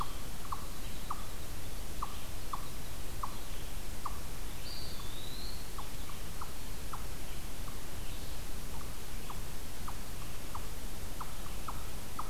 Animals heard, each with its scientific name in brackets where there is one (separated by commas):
unknown mammal, Eastern Wood-Pewee (Contopus virens), Red-eyed Vireo (Vireo olivaceus)